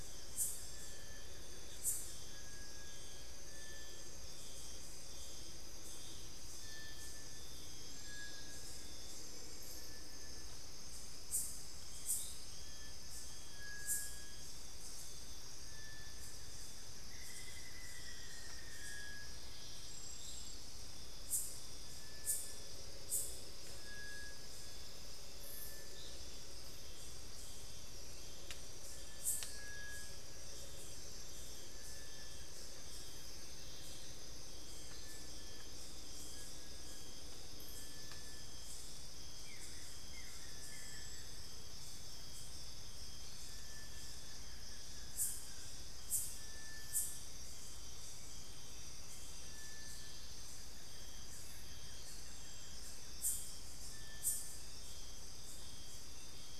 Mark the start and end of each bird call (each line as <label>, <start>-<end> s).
Buff-throated Woodcreeper (Xiphorhynchus guttatus), 0.0-2.5 s
Little Tinamou (Crypturellus soui), 0.0-56.6 s
Black-faced Antthrush (Formicarius analis), 16.7-19.3 s
Buff-throated Woodcreeper (Xiphorhynchus guttatus), 29.9-34.1 s
Buff-throated Woodcreeper (Xiphorhynchus guttatus), 39.3-53.2 s